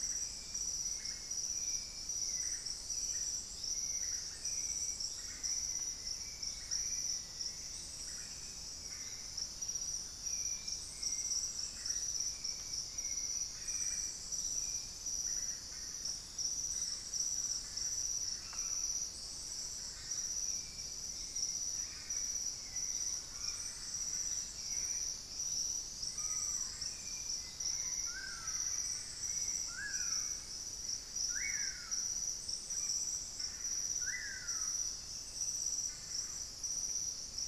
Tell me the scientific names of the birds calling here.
Turdus hauxwelli, Lipaugus vociferans